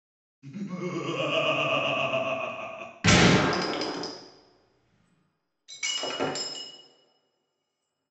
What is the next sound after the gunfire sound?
shatter